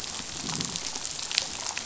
{"label": "biophony, damselfish", "recorder": "SoundTrap 500"}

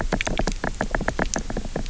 {"label": "biophony, knock", "recorder": "SoundTrap 300"}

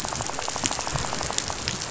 {"label": "biophony, rattle", "recorder": "SoundTrap 500"}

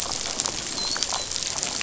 {"label": "biophony, dolphin", "recorder": "SoundTrap 500"}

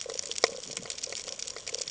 {"label": "ambient", "recorder": "HydroMoth"}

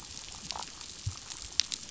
{"label": "biophony, pulse", "recorder": "SoundTrap 500"}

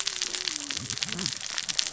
{"label": "biophony, cascading saw", "recorder": "SoundTrap 600 or HydroMoth"}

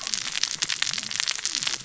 {"label": "biophony, cascading saw", "recorder": "SoundTrap 600 or HydroMoth"}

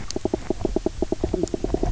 {"label": "biophony, knock croak", "recorder": "SoundTrap 300"}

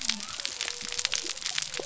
{"label": "biophony", "recorder": "SoundTrap 300"}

